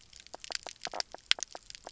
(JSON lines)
{"label": "biophony, knock croak", "recorder": "SoundTrap 300"}